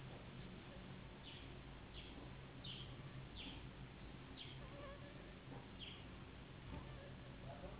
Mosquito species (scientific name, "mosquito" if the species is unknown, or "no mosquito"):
Anopheles gambiae s.s.